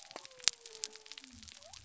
{"label": "biophony", "recorder": "SoundTrap 300"}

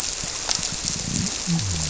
{"label": "biophony", "recorder": "SoundTrap 300"}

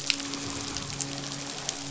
{"label": "biophony, midshipman", "recorder": "SoundTrap 500"}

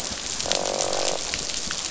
{"label": "biophony, croak", "recorder": "SoundTrap 500"}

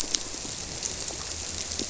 {"label": "biophony", "recorder": "SoundTrap 300"}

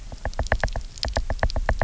{"label": "biophony, knock", "recorder": "SoundTrap 300"}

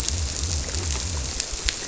{"label": "biophony", "recorder": "SoundTrap 300"}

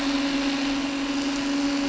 {"label": "anthrophony, boat engine", "recorder": "SoundTrap 300"}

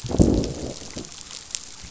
{"label": "biophony, growl", "recorder": "SoundTrap 500"}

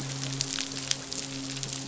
{"label": "biophony, midshipman", "recorder": "SoundTrap 500"}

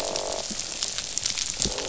{"label": "biophony, croak", "recorder": "SoundTrap 500"}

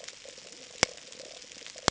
{"label": "ambient", "recorder": "HydroMoth"}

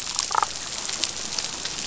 {"label": "biophony, damselfish", "recorder": "SoundTrap 500"}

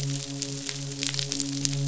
{"label": "biophony, midshipman", "recorder": "SoundTrap 500"}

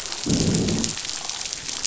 {"label": "biophony, growl", "recorder": "SoundTrap 500"}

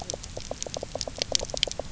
{"label": "biophony, knock croak", "recorder": "SoundTrap 300"}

